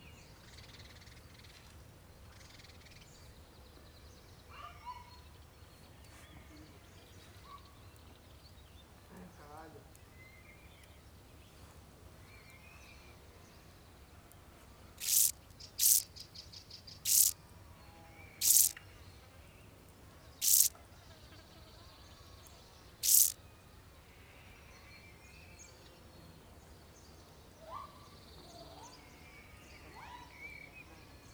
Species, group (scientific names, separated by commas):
Chorthippus brunneus, Orthoptera